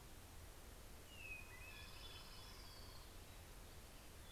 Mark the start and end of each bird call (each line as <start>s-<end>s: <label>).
0.0s-4.3s: Hermit Thrush (Catharus guttatus)
0.5s-3.8s: Orange-crowned Warbler (Leiothlypis celata)